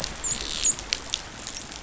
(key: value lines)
label: biophony, dolphin
recorder: SoundTrap 500